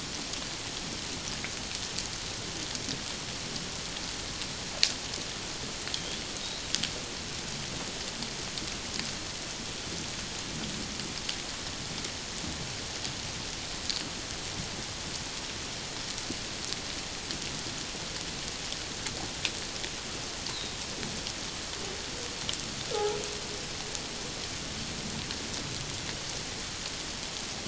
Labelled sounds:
6.0	6.2	humpback whale, 3.1 to 3.5 kHz
22.9	23.2	humpback whale, 1.2 to 1.5 kHz

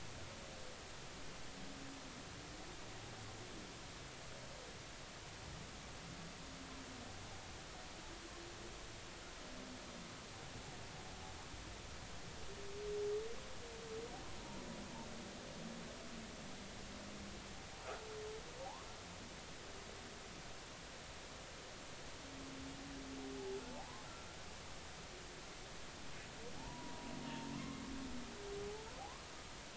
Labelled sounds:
26.6	27.8	humpback whale, 0.80 to 1.1 kHz
29.0	29.2	humpback whale, 0.80 to 1.2 kHz

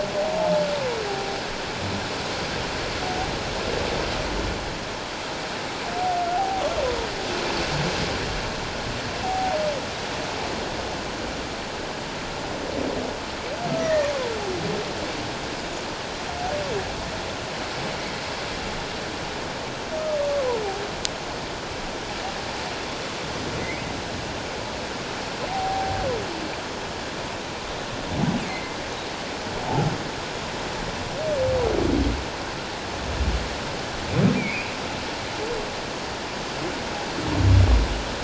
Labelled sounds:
1.1	1.3	humpback whale, 0.78 to 0.84 kHz
6.3	6.6	humpback whale, 0.78 to 0.88 kHz
9.2	9.6	humpback whale, 0.78 to 0.84 kHz
13.8	14.1	humpback whale, 1.8 to 2.0 kHz
20.3	20.6	humpback whale, 0.84 to 1.2 kHz
25.5	26.0	humpback whale, 0.78 to 0.88 kHz
28.5	28.8	humpback whale, 2.0 to 2.2 kHz
34.4	34.7	humpback whale, 2.0 to 2.6 kHz

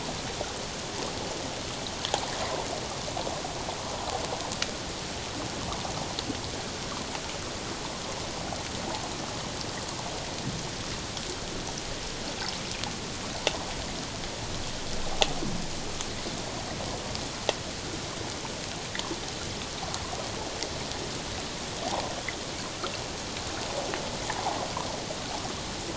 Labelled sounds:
21.9	22.1	water noise, 0.78 to 1.1 kHz
24.3	24.6	water noise, 0.78 to 1.1 kHz

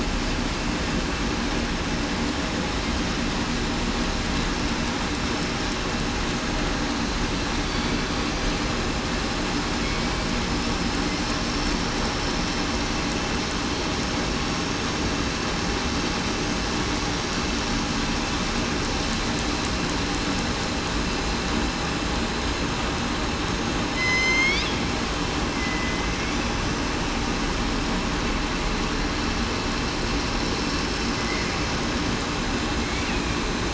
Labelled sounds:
7.7	8.0	killer whale, southern resident, 4.5 to 4.6 kHz
23.9	24.6	killer whale, southern resident, 2.0 to 8.0 kHz
25.5	26.1	killer whale, southern resident, 2.0 to 2.1 kHz

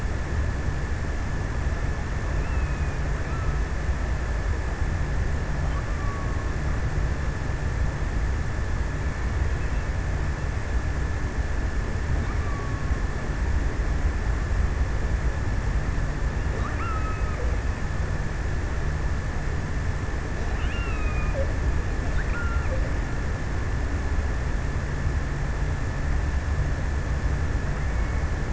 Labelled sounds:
5.5	7.3	killer whale, offshore, 0.89 to 1.4 kHz
11.9	14.0	killer whale, offshore, 0.91 to 1.3 kHz
16.5	17.7	killer whale, offshore, 0.99 to 3.0 kHz
20.1	23.0	killer whale, offshore, 0.88 to 3.3 kHz

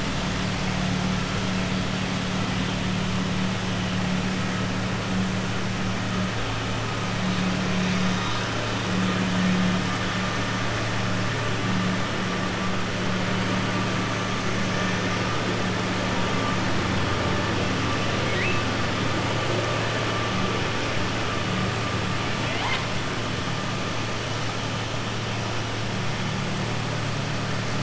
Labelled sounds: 18.2	18.6	killer whale, southern resident, 1.9 to 3.7 kHz
22.3	22.9	killer whale, southern resident, 0.72 to 4.9 kHz

